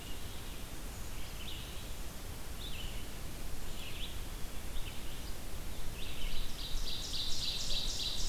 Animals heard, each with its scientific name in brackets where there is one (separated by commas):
Red-eyed Vireo (Vireo olivaceus), Brown Creeper (Certhia americana), Ovenbird (Seiurus aurocapilla)